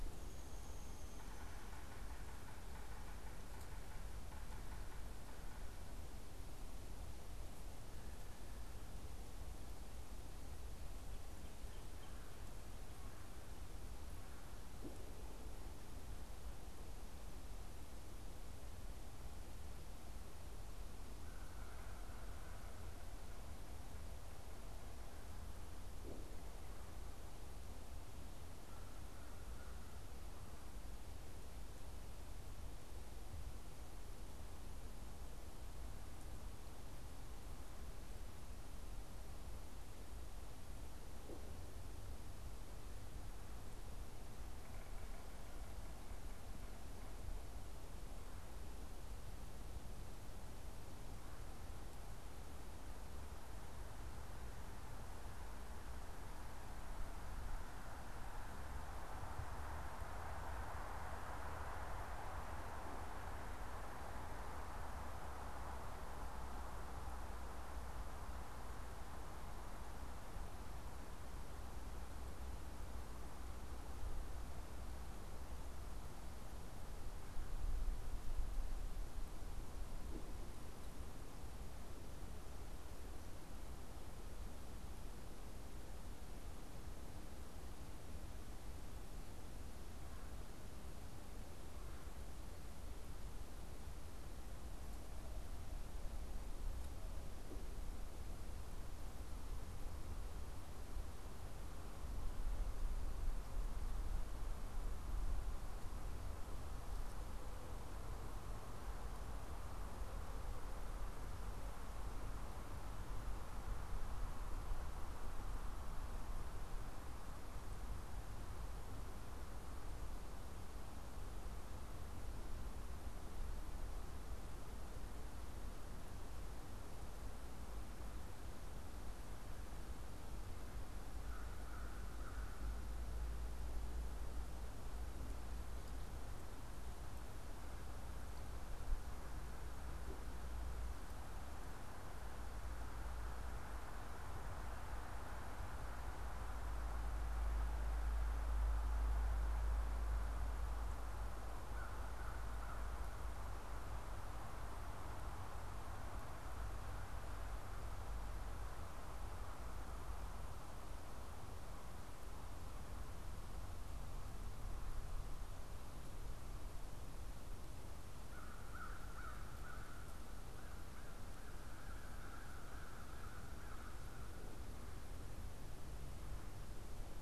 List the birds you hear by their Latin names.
Dryobates pubescens, Sphyrapicus varius, Melanerpes carolinus, Corvus brachyrhynchos